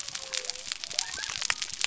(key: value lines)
label: biophony
recorder: SoundTrap 300